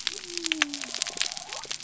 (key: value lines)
label: biophony
recorder: SoundTrap 300